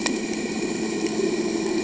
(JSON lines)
{"label": "anthrophony, boat engine", "recorder": "HydroMoth"}